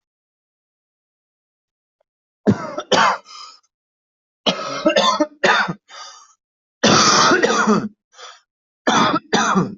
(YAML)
expert_labels:
- quality: good
  cough_type: wet
  dyspnea: true
  wheezing: false
  stridor: false
  choking: false
  congestion: false
  nothing: false
  diagnosis: lower respiratory tract infection
  severity: mild
gender: female
respiratory_condition: false
fever_muscle_pain: false
status: COVID-19